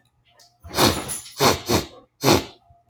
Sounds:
Sniff